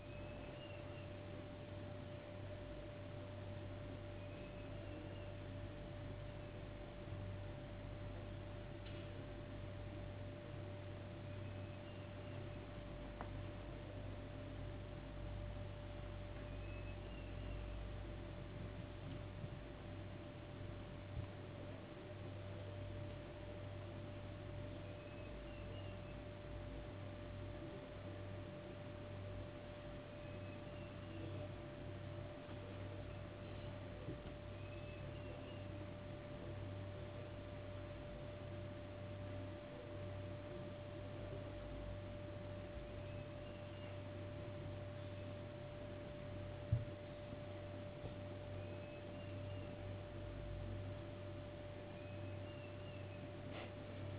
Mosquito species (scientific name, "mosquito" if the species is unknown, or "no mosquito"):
no mosquito